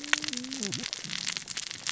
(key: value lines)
label: biophony, cascading saw
recorder: SoundTrap 600 or HydroMoth